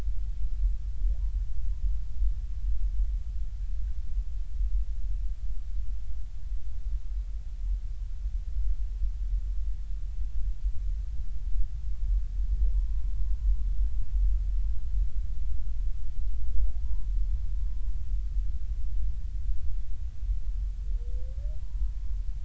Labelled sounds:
12.7	13.2	humpback whale, 0.90 to 1.1 kHz
16.8	17.1	humpback whale, 0.90 to 1.0 kHz
17.6	17.9	humpback whale, 0.99 to 1.1 kHz
21.6	22.2	humpback whale, 0.93 to 1.1 kHz

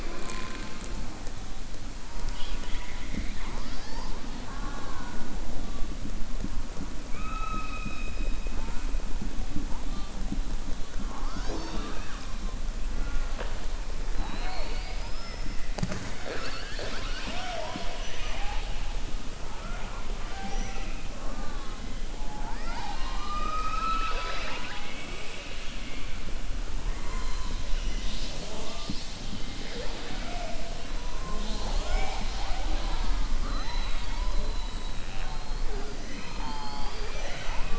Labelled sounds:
2.1	4.2	killer whale, southern resident, 0.22 to 5.6 kHz

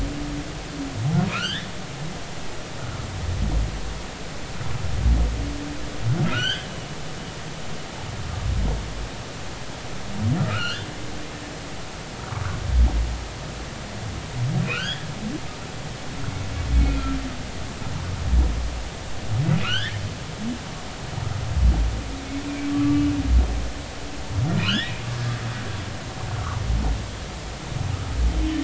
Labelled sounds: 1.3	1.7	humpback whale, 1.2 to 3.8 kHz
6.3	6.7	humpback whale, 1.2 to 4.7 kHz
10.5	10.9	humpback whale, 1.2 to 4.4 kHz
14.6	15.1	humpback whale, 1.2 to 3.6 kHz
16.8	17.1	humpback whale, 2.4 to 2.5 kHz
19.6	20.0	humpback whale, 1.1 to 3.6 kHz
22.7	23.1	humpback whale, 1.1 to 1.3 kHz
24.6	24.9	humpback whale, 1.2 to 3.8 kHz
26.3	26.6	humpback whale, 1.0 to 1.5 kHz

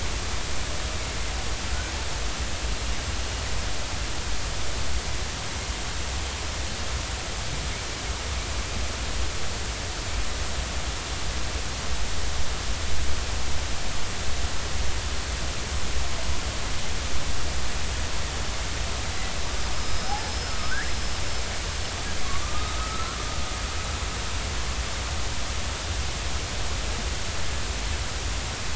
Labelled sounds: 19.7	20.9	killer whale, northern resident, 1.1 to 5.3 kHz
22.4	23.2	killer whale, northern resident, 1.2 to 1.5 kHz

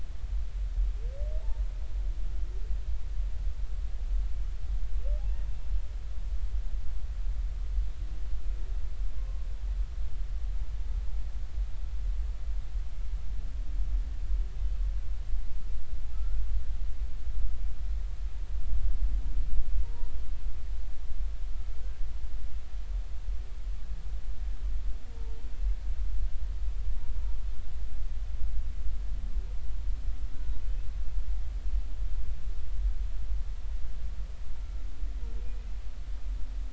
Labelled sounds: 9.2	9.4	humpback whale, 0.99 to 1.1 kHz
16.1	16.4	humpback whale, 1.2 to 1.5 kHz
19.8	20.1	humpback whale, 0.86 to 1.0 kHz

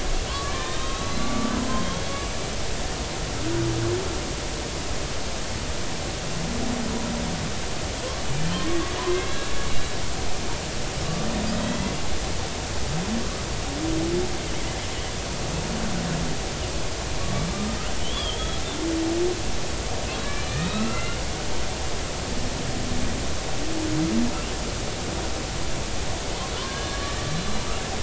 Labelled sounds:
0.4	2.2	killer whale, Bigg's (transient), 1.0 to 3.8 kHz
8.5	8.8	killer whale, Bigg's (transient), 1.0 to 1.2 kHz
9.1	10.0	killer whale, Bigg's (transient), 1.6 to 4.0 kHz
17.2	18.4	killer whale, Bigg's (transient), 1.1 to 3.5 kHz
20.4	21.2	killer whale, Bigg's (transient), 1.2 to 4.3 kHz
26.6	27.2	killer whale, Bigg's (transient), 0.96 to 1.7 kHz

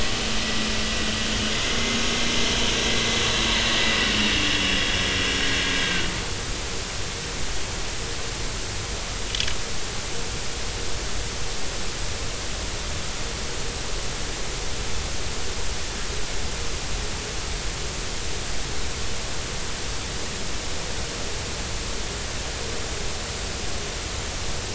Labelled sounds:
4.7	5.0	vessel noise, 3.2 to 3.5 kHz

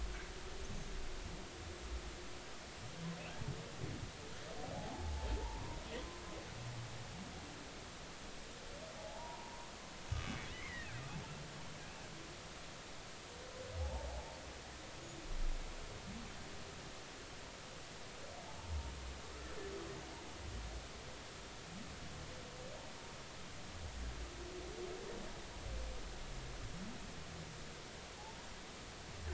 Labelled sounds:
4.7	5.8	humpback whale, 0.80 to 1.1 kHz
9.0	11.0	humpback whale, 0.80 to 2.3 kHz
13.8	14.4	humpback whale, 0.80 to 0.96 kHz

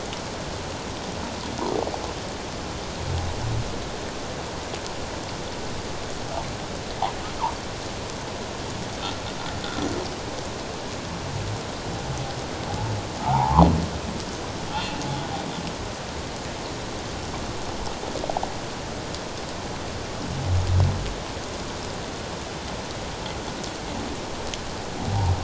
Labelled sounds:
13.2	13.6	humpback whale, 0.78 to 1.2 kHz
14.7	15.1	humpback whale, 2.6 to 2.8 kHz

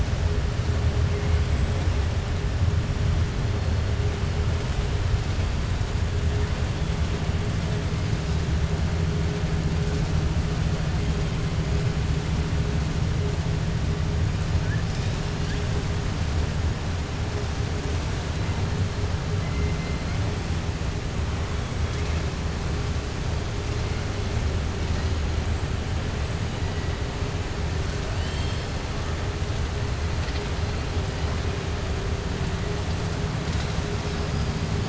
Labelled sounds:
28.1	28.7	killer whale, 2.6 to 5.4 kHz

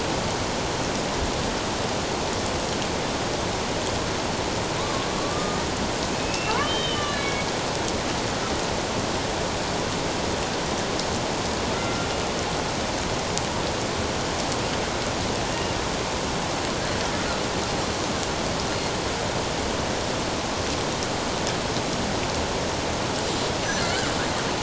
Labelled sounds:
5.2	5.6	killer whale, Bigg's (transient), 1.1 to 1.3 kHz
6.1	7.5	killer whale, Bigg's (transient), 2.2 to 4.3 kHz
11.7	12.1	killer whale, Bigg's (transient), 1.3 to 1.4 kHz
15.5	15.8	killer whale, Bigg's (transient), 2.8 to 2.9 kHz
23.8	24.1	killer whale, Bigg's (transient), 1.3 to 1.7 kHz

